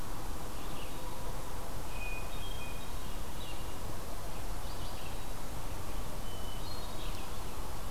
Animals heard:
Red-eyed Vireo (Vireo olivaceus), Hermit Thrush (Catharus guttatus)

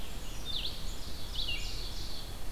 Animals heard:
Red-eyed Vireo (Vireo olivaceus), Ovenbird (Seiurus aurocapilla), Black-capped Chickadee (Poecile atricapillus)

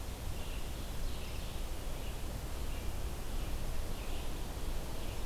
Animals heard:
Red-eyed Vireo (Vireo olivaceus)

